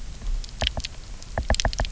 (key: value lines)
label: biophony, knock
recorder: SoundTrap 300